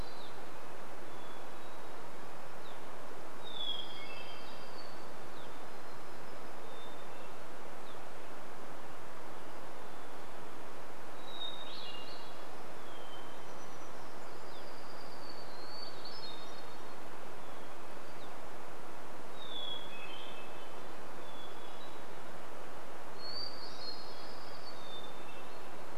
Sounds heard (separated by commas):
Evening Grosbeak call, Hermit Warbler song, Red-breasted Nuthatch song, warbler song, Hermit Thrush song, American Robin song